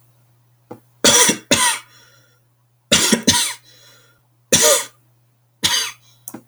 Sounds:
Cough